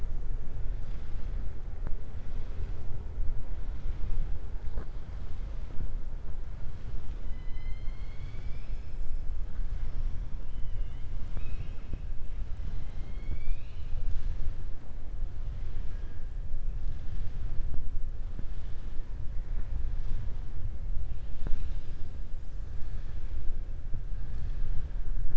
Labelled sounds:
10.5	11.0	killer whale, southern resident, 2.0 to 3.6 kHz

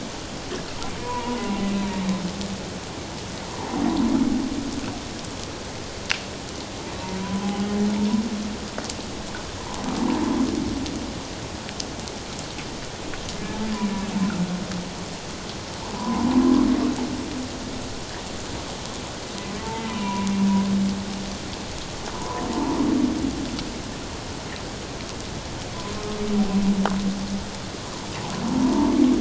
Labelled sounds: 1.0	1.4	humpback whale, 0.88 to 1.1 kHz
7.2	7.5	humpback whale, 0.94 to 1.0 kHz
16.0	16.3	humpback whale, 0.88 to 1.1 kHz
19.9	20.3	humpback whale, 0.91 to 2.8 kHz
22.1	22.5	humpback whale, 0.84 to 1.2 kHz

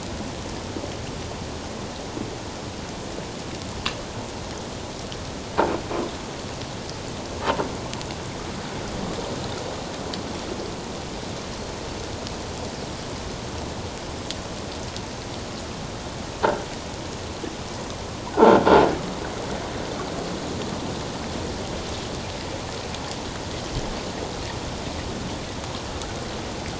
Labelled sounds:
18.3	18.6	croaking sound likely from a nearby submerged object, 1.3 to 1.6 kHz

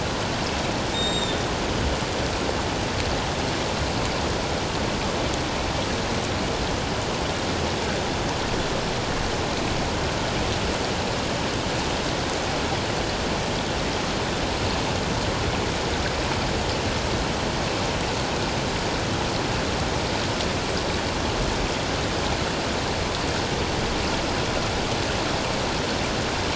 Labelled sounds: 0.9	1.4	Pacific white-sided dolphin, 3.5 to 7.5 kHz

